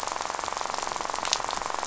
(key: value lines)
label: biophony, rattle
recorder: SoundTrap 500